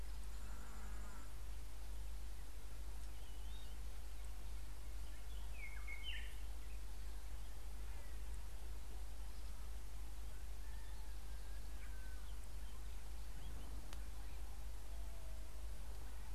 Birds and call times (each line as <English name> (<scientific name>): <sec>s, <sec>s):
White-browed Robin-Chat (Cossypha heuglini): 6.1s